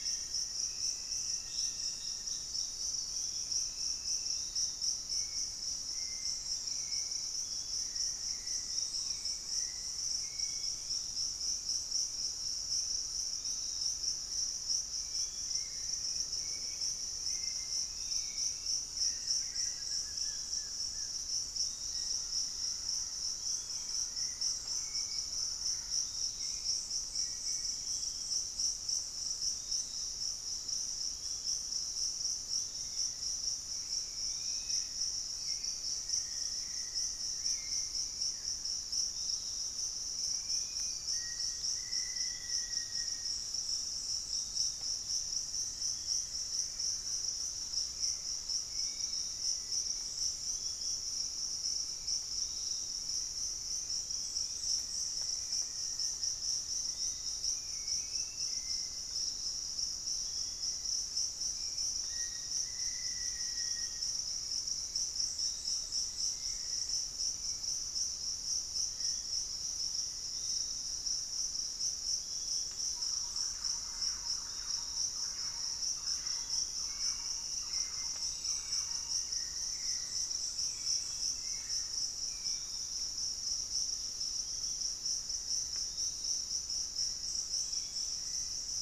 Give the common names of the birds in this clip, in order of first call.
Hauxwell's Thrush, Piratic Flycatcher, Black-faced Antthrush, Golden-crowned Spadebill, Gray Antwren, Cinereous Mourner, Thrush-like Wren, Dusky-capped Flycatcher, Long-billed Woodcreeper, unidentified bird